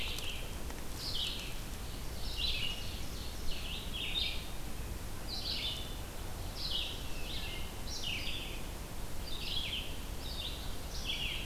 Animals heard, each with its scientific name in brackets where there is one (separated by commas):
Ovenbird (Seiurus aurocapilla), Wood Thrush (Hylocichla mustelina), Red-eyed Vireo (Vireo olivaceus)